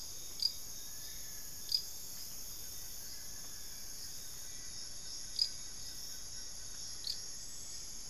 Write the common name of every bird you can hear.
Long-billed Woodcreeper, Amazonian Motmot, Blue-crowned Trogon, Black-faced Antthrush